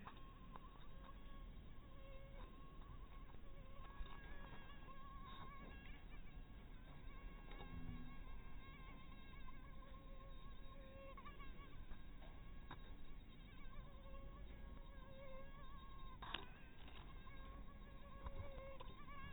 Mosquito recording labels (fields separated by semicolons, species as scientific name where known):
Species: mosquito; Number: one; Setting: cup